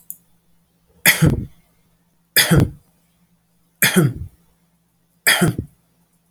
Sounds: Cough